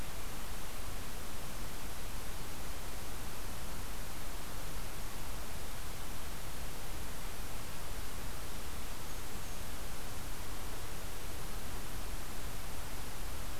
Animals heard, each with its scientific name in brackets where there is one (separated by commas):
Blackburnian Warbler (Setophaga fusca)